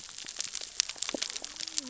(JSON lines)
{"label": "biophony, cascading saw", "recorder": "SoundTrap 600 or HydroMoth"}